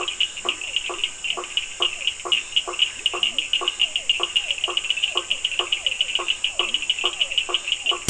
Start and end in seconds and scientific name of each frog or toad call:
0.0	8.0	Boana faber
0.0	8.0	Sphaenorhynchus surdus
0.3	0.7	Leptodactylus latrans
2.2	7.8	Scinax perereca
2.9	3.5	Leptodactylus latrans
3.1	8.0	Physalaemus cuvieri